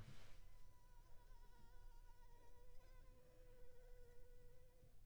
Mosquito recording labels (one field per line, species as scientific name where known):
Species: Anopheles funestus s.s.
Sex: female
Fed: unfed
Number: one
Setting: cup